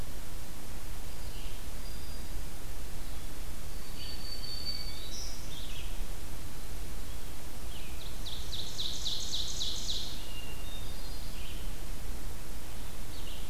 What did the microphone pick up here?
Red-eyed Vireo, Black-throated Green Warbler, Ovenbird, Hermit Thrush